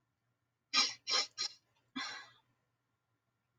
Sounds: Sniff